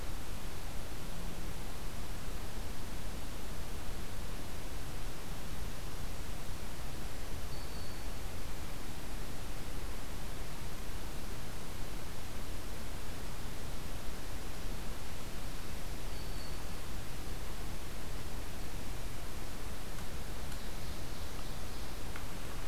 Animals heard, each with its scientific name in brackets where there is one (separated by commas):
Ovenbird (Seiurus aurocapilla), Black-capped Chickadee (Poecile atricapillus)